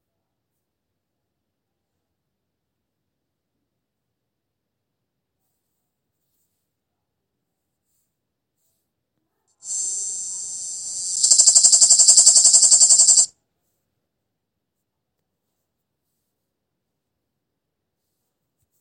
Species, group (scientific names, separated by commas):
Lyristes plebejus, Cicadidae